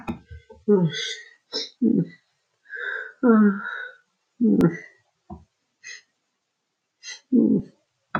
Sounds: Sigh